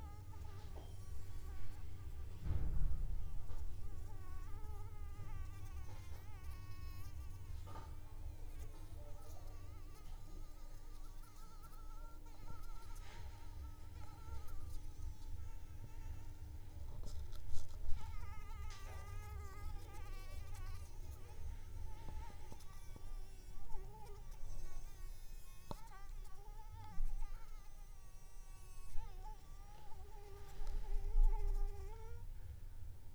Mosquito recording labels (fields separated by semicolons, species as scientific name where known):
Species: Anopheles arabiensis; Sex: female; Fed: unfed; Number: one; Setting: cup